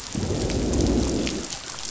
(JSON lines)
{"label": "biophony, growl", "recorder": "SoundTrap 500"}